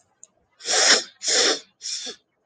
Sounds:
Sniff